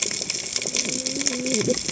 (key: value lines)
label: biophony, cascading saw
recorder: HydroMoth